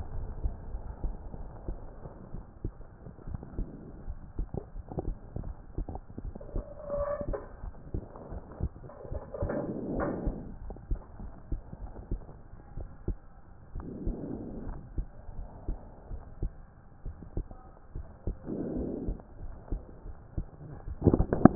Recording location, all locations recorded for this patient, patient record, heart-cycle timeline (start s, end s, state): pulmonary valve (PV)
aortic valve (AV)+pulmonary valve (PV)+tricuspid valve (TV)+mitral valve (MV)
#Age: Adolescent
#Sex: Male
#Height: 136.0 cm
#Weight: 42.4 kg
#Pregnancy status: False
#Murmur: Absent
#Murmur locations: nan
#Most audible location: nan
#Systolic murmur timing: nan
#Systolic murmur shape: nan
#Systolic murmur grading: nan
#Systolic murmur pitch: nan
#Systolic murmur quality: nan
#Diastolic murmur timing: nan
#Diastolic murmur shape: nan
#Diastolic murmur grading: nan
#Diastolic murmur pitch: nan
#Diastolic murmur quality: nan
#Outcome: Normal
#Campaign: 2015 screening campaign
0.00	10.59	unannotated
10.59	10.74	S1
10.74	10.88	systole
10.88	11.02	S2
11.02	11.18	diastole
11.18	11.32	S1
11.32	11.48	systole
11.48	11.61	S2
11.61	11.80	diastole
11.80	11.91	S1
11.91	12.09	systole
12.09	12.23	S2
12.23	12.78	diastole
12.78	12.90	S1
12.90	13.08	systole
13.08	13.18	S2
13.18	13.71	diastole
13.71	13.86	S1
13.86	14.05	systole
14.05	14.14	S2
14.14	14.64	diastole
14.64	14.78	S1
14.78	14.94	systole
14.94	15.07	S2
15.07	15.33	diastole
15.33	15.46	S1
15.46	15.66	systole
15.66	15.79	S2
15.79	16.10	diastole
16.10	16.22	S1
16.22	16.40	systole
16.40	16.52	S2
16.52	17.06	diastole
17.06	17.16	S1
17.16	17.38	systole
17.38	17.46	S2
17.46	17.98	diastole
17.98	18.06	S1
18.06	18.28	systole
18.28	18.38	S2
18.38	21.55	unannotated